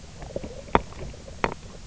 {"label": "biophony, knock croak", "recorder": "SoundTrap 300"}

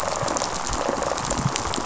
{"label": "biophony, rattle response", "recorder": "SoundTrap 500"}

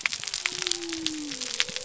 {"label": "biophony", "recorder": "SoundTrap 300"}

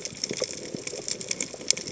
{"label": "biophony", "recorder": "HydroMoth"}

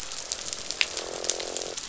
{"label": "biophony, croak", "recorder": "SoundTrap 500"}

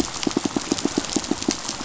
{"label": "biophony, pulse", "recorder": "SoundTrap 500"}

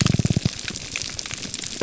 {"label": "biophony", "recorder": "SoundTrap 300"}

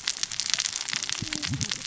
{"label": "biophony, cascading saw", "recorder": "SoundTrap 600 or HydroMoth"}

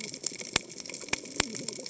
{"label": "biophony, cascading saw", "recorder": "HydroMoth"}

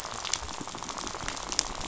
{"label": "biophony, rattle", "recorder": "SoundTrap 500"}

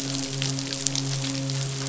{"label": "biophony, midshipman", "recorder": "SoundTrap 500"}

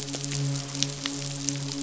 {"label": "biophony, midshipman", "recorder": "SoundTrap 500"}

